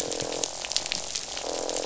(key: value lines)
label: biophony, croak
recorder: SoundTrap 500